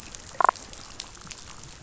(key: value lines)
label: biophony, damselfish
recorder: SoundTrap 500